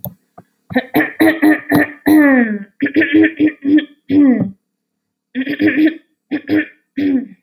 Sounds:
Throat clearing